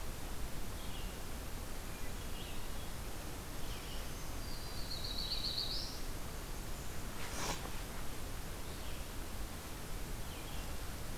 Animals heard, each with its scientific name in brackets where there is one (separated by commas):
Red-eyed Vireo (Vireo olivaceus), Black-throated Green Warbler (Setophaga virens), Black-throated Blue Warbler (Setophaga caerulescens)